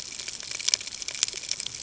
{"label": "ambient", "recorder": "HydroMoth"}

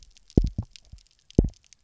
{"label": "biophony, double pulse", "recorder": "SoundTrap 300"}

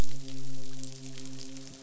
{"label": "biophony, midshipman", "recorder": "SoundTrap 500"}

